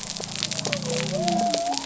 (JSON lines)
{"label": "biophony", "recorder": "SoundTrap 300"}